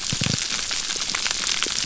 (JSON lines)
{"label": "biophony", "recorder": "SoundTrap 300"}